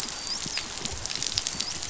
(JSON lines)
{"label": "biophony, dolphin", "recorder": "SoundTrap 500"}